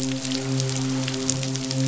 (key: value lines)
label: biophony, midshipman
recorder: SoundTrap 500